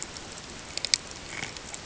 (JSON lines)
{"label": "ambient", "recorder": "HydroMoth"}